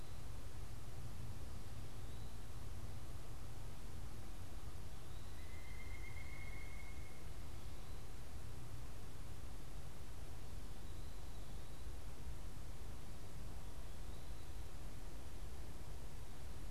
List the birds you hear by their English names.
Pileated Woodpecker